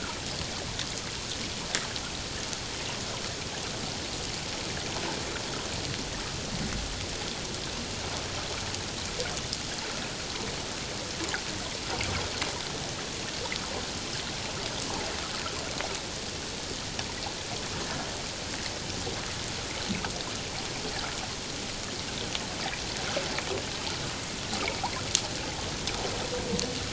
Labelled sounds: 17.8	18.1	humpback whale, 1.6 to 1.8 kHz

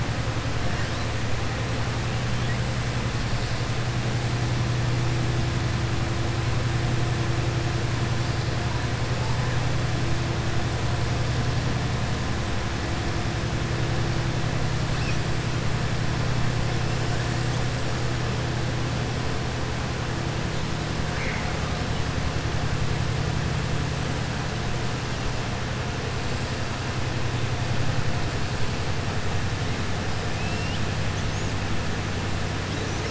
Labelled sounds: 30.4	30.8	killer whale, southern resident, 2.6 to 3.7 kHz

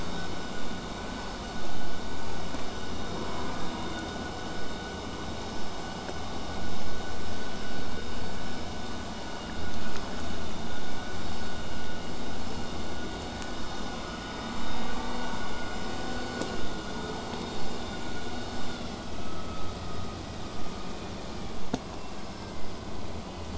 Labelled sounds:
16.5	21.5	vessel noise, 0 to 8.0 kHz

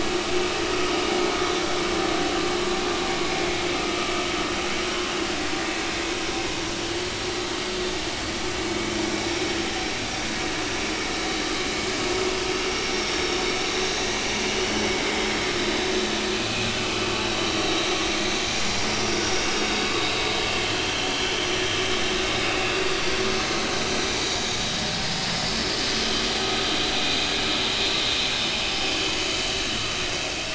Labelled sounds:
16.2	16.8	vessel noise, 2.4 to 4.4 kHz
20.6	20.9	vessel noise, 2.9 to 3.2 kHz
24.4	24.8	vessel noise, 4.1 to 4.3 kHz

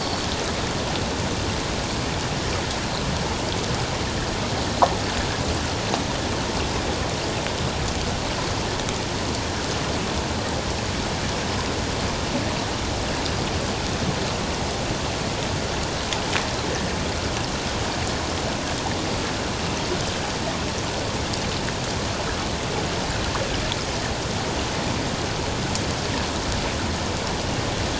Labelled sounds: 0.0	0.3	Pacific white-sided dolphin, 4.3 to 4.6 kHz

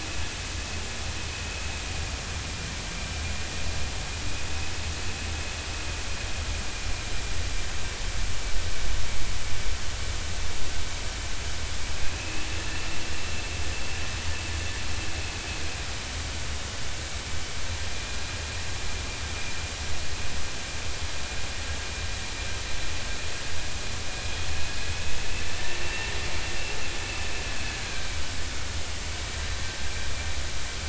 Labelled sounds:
12.0	12.5	vessel noise, 2.4 to 2.7 kHz
17.9	18.2	vessel noise, 2.3 to 2.5 kHz
25.6	26.1	vessel noise, 1.7 to 2.8 kHz
27.8	28.1	vessel noise, 1.5 to 1.7 kHz

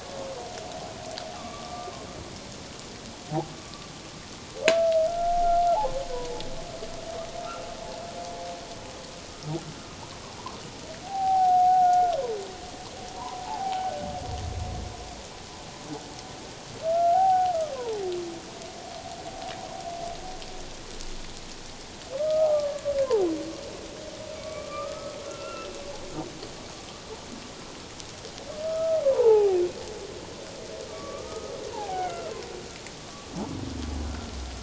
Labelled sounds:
1.3	1.9	humpback whale, 1.1 to 1.4 kHz
3.6	3.9	humpback whale, 1.1 to 1.2 kHz
5.1	5.4	humpback whale, 1.3 to 1.4 kHz
11.0	12.2	humpback whale, 0.78 to 1.6 kHz
13.1	13.9	humpback whale, 0.78 to 1.1 kHz
16.9	18.0	humpback whale, 0.78 to 1.6 kHz
22.1	22.8	humpback whale, 1.1 to 1.3 kHz
24.4	25.7	humpback whale, 1.1 to 2.8 kHz
28.6	29.6	humpback whale, 0.78 to 1.3 kHz
30.9	32.3	humpback whale, 0.78 to 2.3 kHz

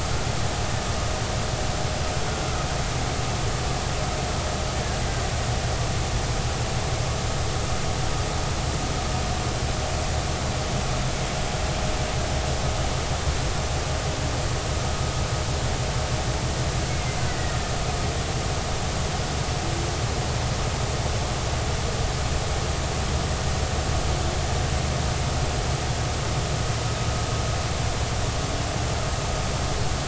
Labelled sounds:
16.9	17.2	killer whale, Bigg's (transient), 2.0 to 2.2 kHz

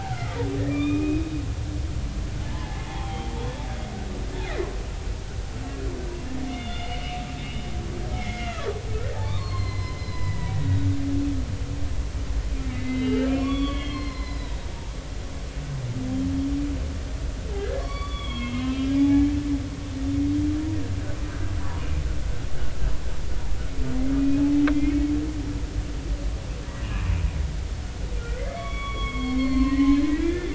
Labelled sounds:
0.1	1.4	humpback whale, 1.1 to 3.8 kHz
2.5	3.6	humpback whale, 0.80 to 3.5 kHz
6.4	7.0	humpback whale, 1.3 to 3.7 kHz
8.1	11.0	humpback whale, 0.80 to 5.2 kHz
12.7	14.7	humpback whale, 0.96 to 5.1 kHz
17.6	19.3	humpback whale, 0.80 to 4.6 kHz
24.7	25.1	humpback whale, 2.0 to 2.3 kHz
26.8	27.1	humpback whale, 2.4 to 2.7 kHz
28.3	30.5	humpback whale, 0.99 to 4.4 kHz

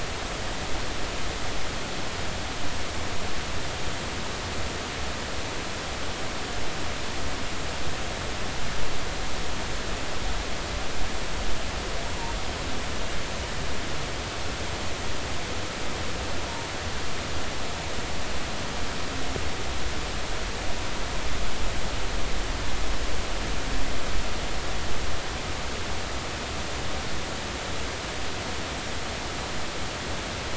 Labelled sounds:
12.1	12.3	humpback whale, 0.86 to 1.0 kHz

